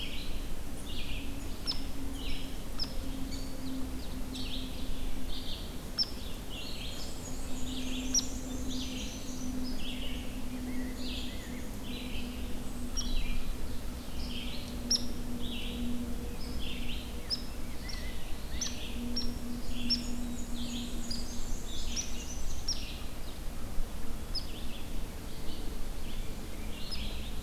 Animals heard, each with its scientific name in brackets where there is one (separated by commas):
Rose-breasted Grosbeak (Pheucticus ludovicianus), Hairy Woodpecker (Dryobates villosus), Red-eyed Vireo (Vireo olivaceus), Ovenbird (Seiurus aurocapilla), Black-throated Blue Warbler (Setophaga caerulescens), Black-and-white Warbler (Mniotilta varia)